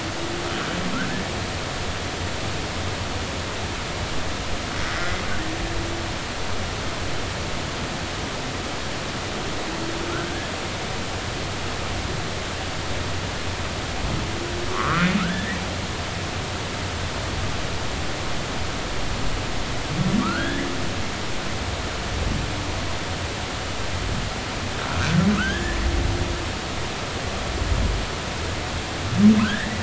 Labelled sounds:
14.7	15.6	humpback whale, 0.99 to 2.0 kHz
20.2	20.7	humpback whale, 1.1 to 1.8 kHz
25.3	25.8	humpback whale, 1.2 to 3.3 kHz
29.4	29.7	humpback whale, 1.2 to 2.0 kHz

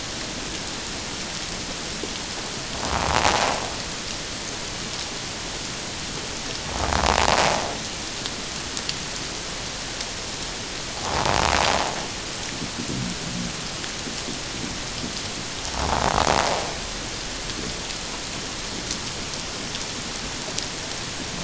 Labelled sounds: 11.0	11.3	invertebrate grinding on or near the hydrophone, 0.78 to 1.2 kHz

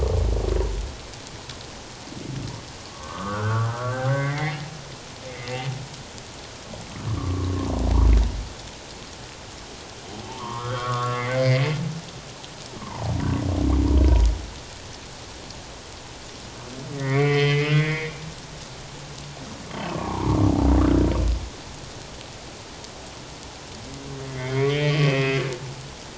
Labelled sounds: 2.9	4.6	humpback whale, 1.0 to 2.3 kHz
5.3	5.7	humpback whale, 1.9 to 2.2 kHz
7.1	7.7	humpback whale, 1.0 to 1.2 kHz
10.2	11.8	humpback whale, 0.81 to 3.3 kHz
12.8	13.1	humpback whale, 0.78 to 1.2 kHz
16.9	18.2	humpback whale, 1.1 to 3.2 kHz
19.9	20.4	humpback whale, 0.78 to 1.3 kHz
24.2	25.4	humpback whale, 1.8 to 5.2 kHz

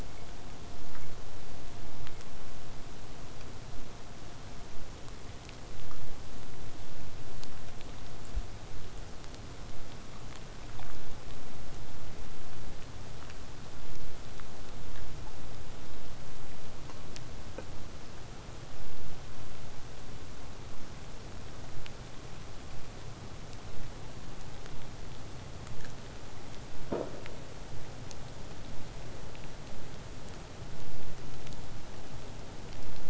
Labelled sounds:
20.7	25.7	vessel noise, 0 to 8.0 kHz

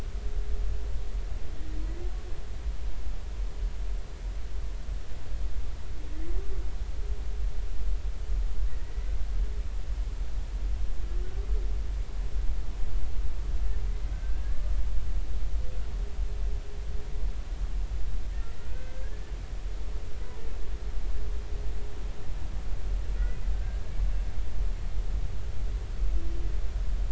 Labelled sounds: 14.1	14.7	humpback whale, 1.5 to 1.8 kHz
18.7	19.2	humpback whale, 1.5 to 2.6 kHz
23.5	24.0	humpback whale, 1.5 to 1.8 kHz

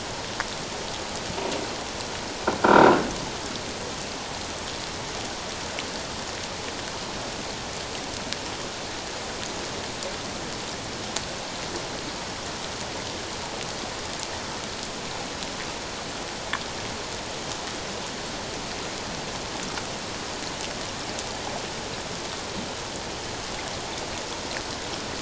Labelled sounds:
2.6	3.0	croaking sound likely from a nearby submerged object, 1.3 to 1.6 kHz

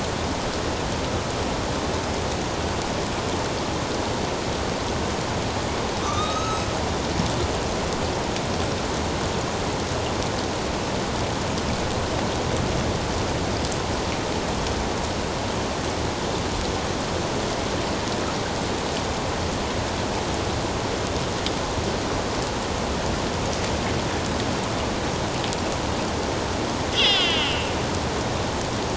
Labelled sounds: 6.0	6.7	killer whale, northern resident, A clan, AB subclan, 1.1 to 6.5 kHz
26.9	27.7	killer whale, northern resident, A clan, AB subclan, 2.5 to 5.4 kHz

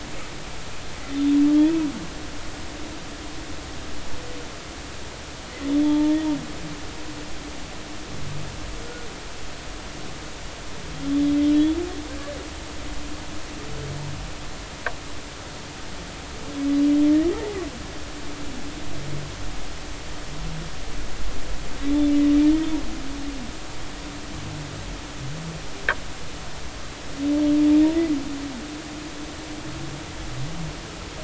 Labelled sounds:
5.8	6.2	humpback whale, 0.83 to 0.96 kHz

